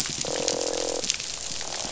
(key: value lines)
label: biophony
recorder: SoundTrap 500

label: biophony, croak
recorder: SoundTrap 500